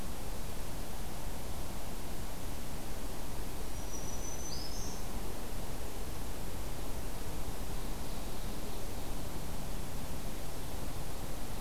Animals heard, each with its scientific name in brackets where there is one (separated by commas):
Ovenbird (Seiurus aurocapilla), Black-throated Green Warbler (Setophaga virens)